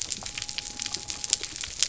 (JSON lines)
{"label": "biophony", "recorder": "SoundTrap 300"}